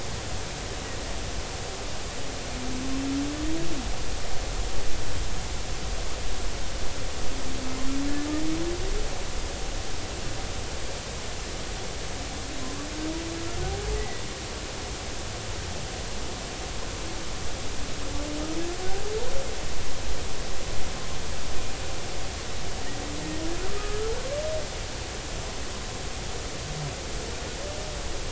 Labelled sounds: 12.6	12.9	humpback whale, 0.96 to 1.3 kHz
14.0	14.2	humpback whale, 1.9 to 2.1 kHz
23.7	24.1	humpback whale, 1.1 to 1.4 kHz

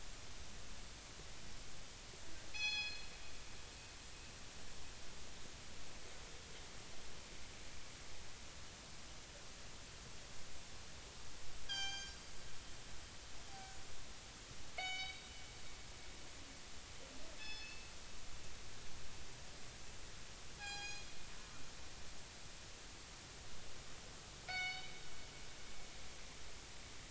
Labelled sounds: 2.5	3.1	killer whale, northern resident, G clan, call N24ii, 0.80 to 6.0 kHz
11.6	12.2	killer whale, northern resident, G clan, call N24ii, 0.80 to 8.0 kHz
14.8	15.2	killer whale, northern resident, G clan, call N24ii, 1.4 to 6.0 kHz
17.4	17.9	killer whale, northern resident, G clan, call N24ii, 1.7 to 5.3 kHz
20.6	21.1	killer whale, northern resident, G clan, call N24ii, 0.80 to 7.4 kHz
24.5	25.0	killer whale, northern resident, G clan, call N24ii, 1.4 to 5.3 kHz

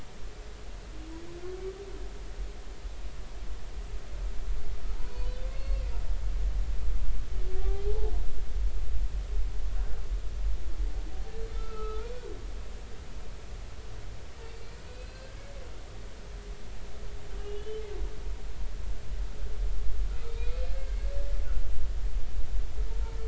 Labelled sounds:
4.9	5.8	humpback whale, 0.80 to 4.5 kHz
7.5	8.1	humpback whale, 0.80 to 0.99 kHz
11.5	12.1	humpback whale, 1.2 to 2.7 kHz
14.8	15.5	humpback whale, 1.5 to 4.3 kHz
17.4	17.8	humpback whale, 2.8 to 3.1 kHz
20.3	20.6	humpback whale, 2.3 to 2.6 kHz

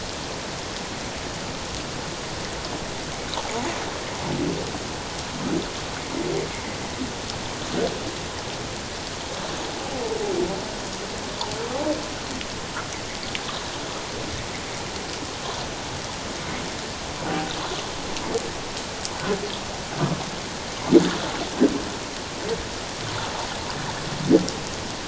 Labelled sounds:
6.5	6.8	humpback whale, 1.9 to 2.2 kHz

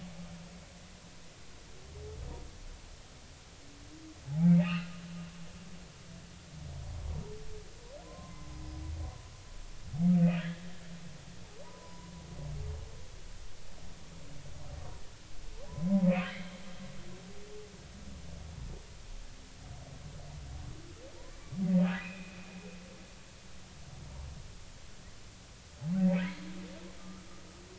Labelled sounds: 4.3	4.9	humpback whale, 0.80 to 3.0 kHz
8.0	8.8	humpback whale, 0.96 to 5.1 kHz
10.4	10.6	humpback whale, 1.6 to 2.1 kHz
11.6	12.1	humpback whale, 0.90 to 1.1 kHz
15.7	16.5	humpback whale, 0.90 to 2.7 kHz
22.0	22.6	humpback whale, 2.3 to 2.7 kHz

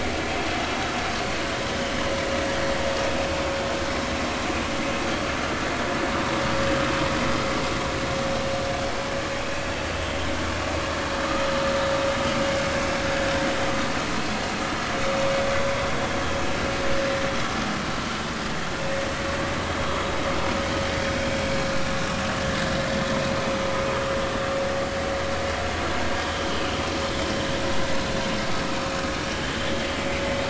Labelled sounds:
26.3	26.6	vessel noise, 3.0 to 3.3 kHz

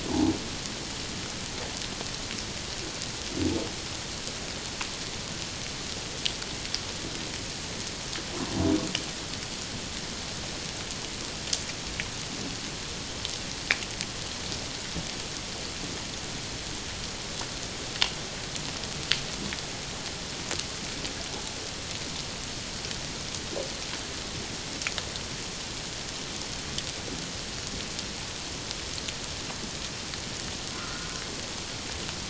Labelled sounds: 30.7	31.1	humpback whale, 1.2 to 1.5 kHz

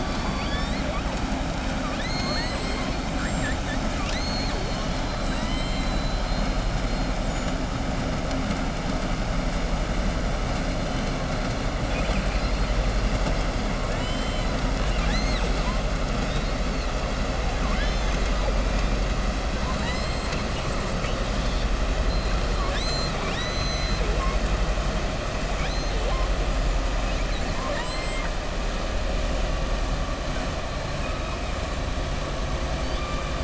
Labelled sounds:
1.8	3.6	killer whale, southern resident, 0.43 to 7.9 kHz
5.2	5.9	killer whale, southern resident, 7.2 to 8.0 kHz
11.8	12.7	killer whale, southern resident, 1.6 to 5.1 kHz
14.8	15.7	killer whale, southern resident, 1.2 to 7.8 kHz
19.5	20.7	killer whale, southern resident, 0.93 to 8.0 kHz
22.5	24.4	killer whale, southern resident, 0.44 to 7.9 kHz
27.5	28.3	killer whale, southern resident, 0.59 to 8.0 kHz

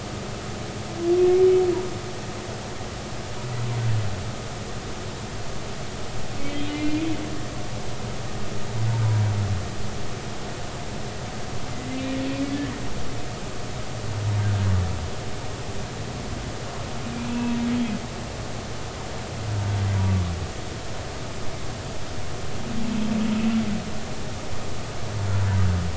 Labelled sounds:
6.4	7.1	humpback whale, 2.0 to 3.3 kHz
17.2	17.6	humpback whale, 0.93 to 2.8 kHz

